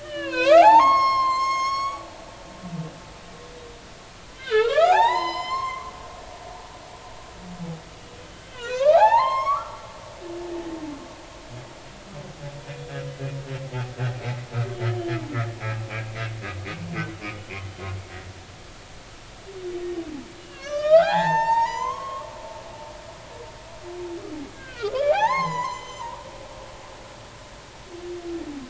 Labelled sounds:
0.0	2.0	humpback whale, 0.80 to 7.8 kHz
4.4	5.9	humpback whale, 0.80 to 8.0 kHz
6.5	6.8	humpback whale, 6.1 to 6.5 kHz
8.5	9.9	humpback whale, 0.80 to 7.5 kHz
14.9	15.2	humpback whale, 2.9 to 3.2 kHz
17.6	17.9	humpback whale, 3.0 to 3.2 kHz
20.4	22.3	humpback whale, 0.80 to 7.4 kHz
24.4	26.2	humpback whale, 0.80 to 7.3 kHz

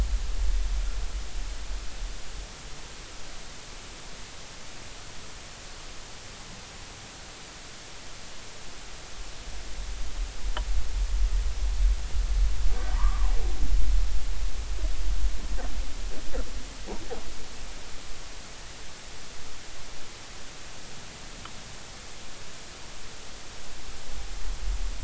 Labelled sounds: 12.9	13.3	humpback whale, 0.90 to 1.3 kHz

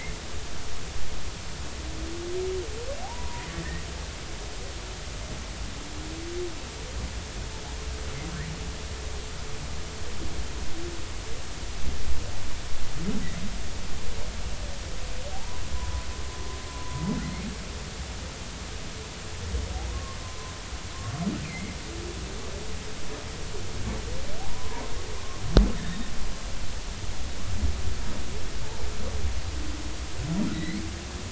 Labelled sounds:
3.0	3.5	humpback whale, 0.80 to 1.0 kHz
15.3	15.6	humpback whale, 0.80 to 1.1 kHz
16.7	17.0	humpback whale, 0.96 to 1.1 kHz
19.9	20.5	humpback whale, 0.93 to 1.1 kHz
21.4	21.8	humpback whale, 2.0 to 2.6 kHz
24.4	24.8	humpback whale, 0.80 to 1.1 kHz
25.8	26.1	humpback whale, 3.6 to 3.8 kHz
30.5	30.8	humpback whale, 1.9 to 4.3 kHz

